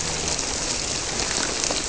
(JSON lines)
{"label": "biophony", "recorder": "SoundTrap 300"}